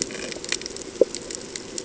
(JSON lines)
{"label": "ambient", "recorder": "HydroMoth"}